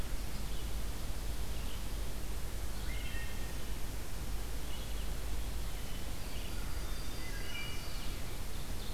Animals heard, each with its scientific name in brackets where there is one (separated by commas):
Wood Thrush (Hylocichla mustelina), Red-eyed Vireo (Vireo olivaceus), Yellow-rumped Warbler (Setophaga coronata), Ovenbird (Seiurus aurocapilla)